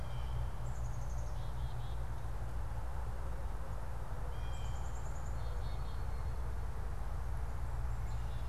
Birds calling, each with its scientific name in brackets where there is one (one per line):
Blue Jay (Cyanocitta cristata)
Black-capped Chickadee (Poecile atricapillus)